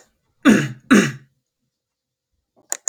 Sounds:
Sniff